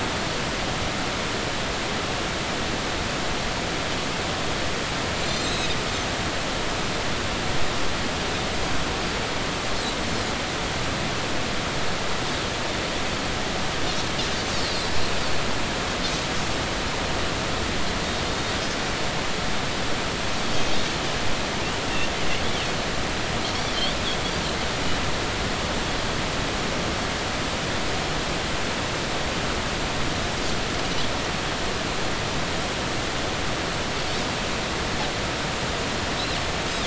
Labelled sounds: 5.2	5.8	Pacific white-sided dolphin, 3.5 to 7.6 kHz
14.7	14.9	Pacific white-sided dolphin, 3.9 to 4.9 kHz

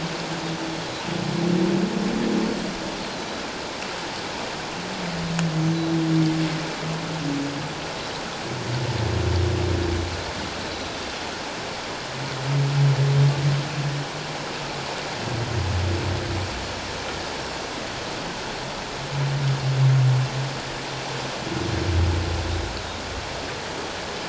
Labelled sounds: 3.0	3.4	Pacific white-sided dolphin, 3.9 to 4.4 kHz
10.7	11.0	Pacific white-sided dolphin, 3.8 to 4.1 kHz

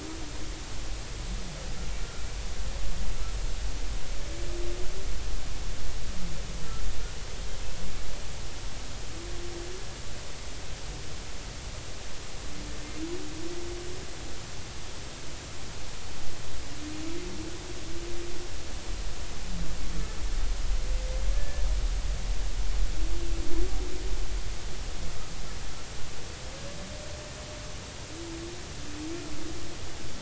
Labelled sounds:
21.3	21.6	humpback whale, 1.6 to 1.8 kHz

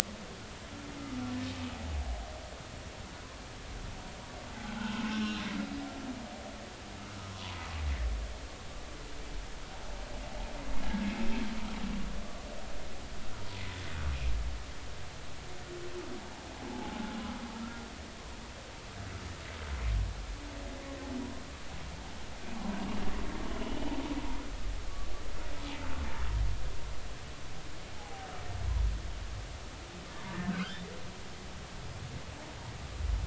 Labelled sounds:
4.8	5.4	humpback whale, 1.3 to 5.4 kHz
7.3	7.6	humpback whale, 0.93 to 1.2 kHz
23.6	23.9	humpback whale, 2.8 to 3.1 kHz
28.0	28.3	humpback whale, 0.80 to 0.90 kHz
30.5	30.9	humpback whale, 1.2 to 3.8 kHz

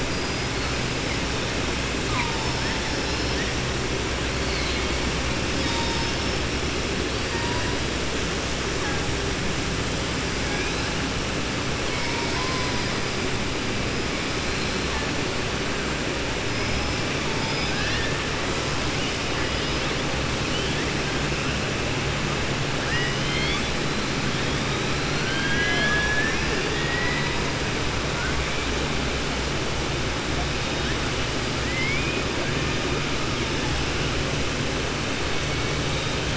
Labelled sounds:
0.0	0.5	killer whale, southern resident, 4.8 to 5.1 kHz
17.4	18.1	killer whale, southern resident, 1.6 to 5.8 kHz
22.8	23.7	killer whale, southern resident, 1.3 to 5.2 kHz
31.6	32.2	killer whale, southern resident, 1.9 to 3.1 kHz

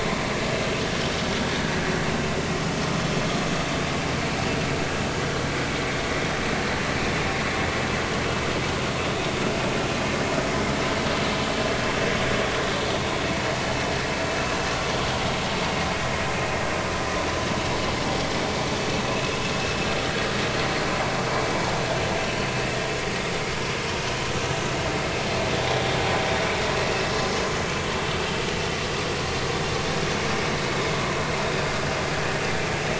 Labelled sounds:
26.9	27.1	vessel noise, 2.6 to 2.8 kHz
31.5	31.8	vessel noise, 4.7 to 4.9 kHz

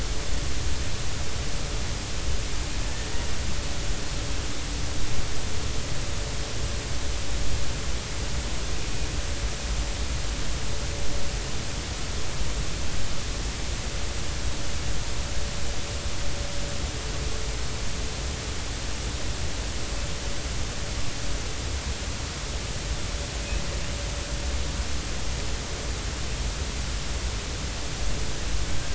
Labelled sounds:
2.9	3.1	killer whale, Bigg's (transient), 1.7 to 1.9 kHz

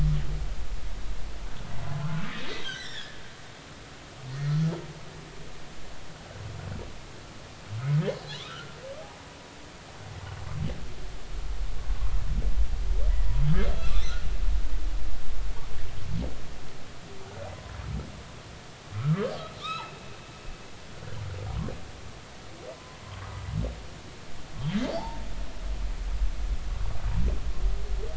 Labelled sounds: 2.0	2.3	humpback whale, 1.3 to 1.5 kHz
2.6	3.2	humpback whale, 1.4 to 5.6 kHz
8.4	8.7	humpback whale, 1.1 to 1.6 kHz
13.7	14.2	humpback whale, 2.4 to 4.2 kHz
18.9	19.3	humpback whale, 1.1 to 1.4 kHz
19.6	20.0	humpback whale, 1.1 to 4.0 kHz
23.1	23.3	humpback whale, 0.99 to 1.3 kHz
24.9	25.2	humpback whale, 0.80 to 4.8 kHz

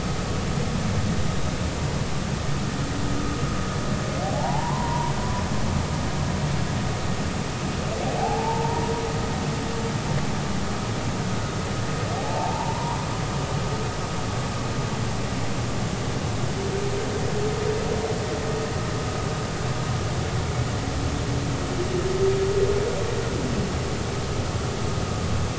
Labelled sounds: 4.2	5.1	humpback whale, 0.80 to 1.1 kHz
8.2	8.8	humpback whale, 0.80 to 0.99 kHz
12.2	13.0	humpback whale, 0.80 to 1.1 kHz

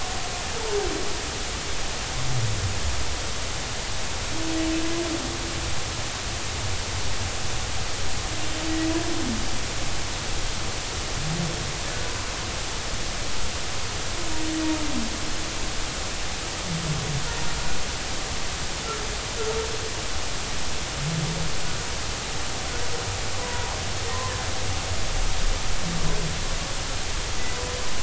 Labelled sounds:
23.3	23.8	humpback whale, 0.80 to 1.2 kHz

